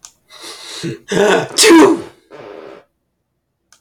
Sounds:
Sneeze